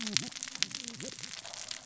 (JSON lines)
{"label": "biophony, cascading saw", "recorder": "SoundTrap 600 or HydroMoth"}